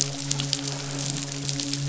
{"label": "biophony, midshipman", "recorder": "SoundTrap 500"}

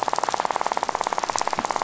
{"label": "biophony, rattle", "recorder": "SoundTrap 500"}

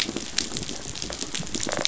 {"label": "biophony, rattle response", "recorder": "SoundTrap 500"}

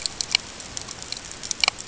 {"label": "ambient", "recorder": "HydroMoth"}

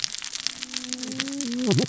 {"label": "biophony, cascading saw", "recorder": "SoundTrap 600 or HydroMoth"}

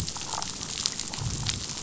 {"label": "biophony, damselfish", "recorder": "SoundTrap 500"}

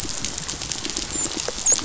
{"label": "biophony, dolphin", "recorder": "SoundTrap 500"}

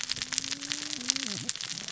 {"label": "biophony, cascading saw", "recorder": "SoundTrap 600 or HydroMoth"}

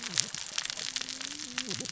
{"label": "biophony, cascading saw", "recorder": "SoundTrap 600 or HydroMoth"}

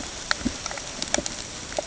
{"label": "ambient", "recorder": "HydroMoth"}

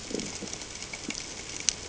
{"label": "ambient", "recorder": "HydroMoth"}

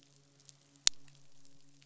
{"label": "biophony, midshipman", "recorder": "SoundTrap 500"}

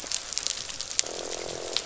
{"label": "biophony, croak", "recorder": "SoundTrap 500"}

